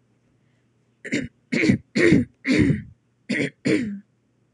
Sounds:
Throat clearing